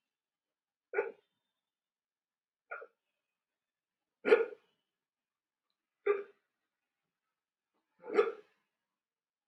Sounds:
Sigh